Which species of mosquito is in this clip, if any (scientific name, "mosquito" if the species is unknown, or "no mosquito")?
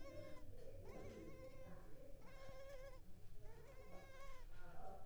Culex pipiens complex